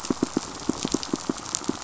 {"label": "biophony, pulse", "recorder": "SoundTrap 500"}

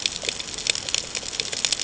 {"label": "ambient", "recorder": "HydroMoth"}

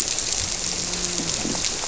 {"label": "biophony", "recorder": "SoundTrap 300"}
{"label": "biophony, grouper", "recorder": "SoundTrap 300"}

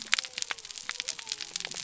{"label": "biophony", "recorder": "SoundTrap 300"}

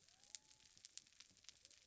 {"label": "biophony", "recorder": "SoundTrap 300"}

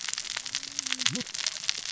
{"label": "biophony, cascading saw", "recorder": "SoundTrap 600 or HydroMoth"}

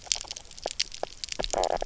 {"label": "biophony, knock croak", "recorder": "SoundTrap 300"}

